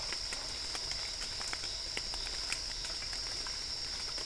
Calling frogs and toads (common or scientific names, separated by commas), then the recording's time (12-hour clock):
Dendropsophus cruzi
8:30pm